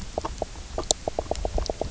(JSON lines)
{"label": "biophony, knock croak", "recorder": "SoundTrap 300"}